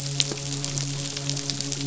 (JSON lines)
{"label": "biophony, midshipman", "recorder": "SoundTrap 500"}